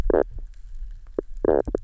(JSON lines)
{"label": "biophony, knock croak", "recorder": "SoundTrap 300"}